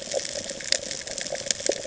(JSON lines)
{"label": "ambient", "recorder": "HydroMoth"}